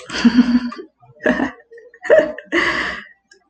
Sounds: Laughter